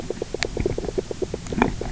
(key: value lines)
label: biophony, knock croak
recorder: SoundTrap 300